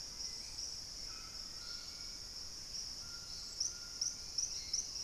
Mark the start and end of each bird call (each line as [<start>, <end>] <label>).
[0.00, 5.04] Hauxwell's Thrush (Turdus hauxwelli)
[0.00, 5.04] White-throated Toucan (Ramphastos tucanus)
[3.76, 5.04] White-crested Spadebill (Platyrinchus platyrhynchos)